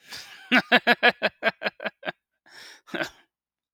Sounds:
Laughter